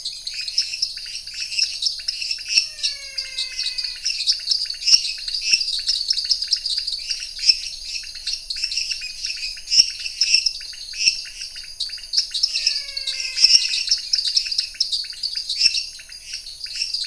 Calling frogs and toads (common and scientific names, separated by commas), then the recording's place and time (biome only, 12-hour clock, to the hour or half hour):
lesser tree frog (Dendropsophus minutus), dwarf tree frog (Dendropsophus nanus), pointedbelly frog (Leptodactylus podicipinus), menwig frog (Physalaemus albonotatus)
Cerrado, 9pm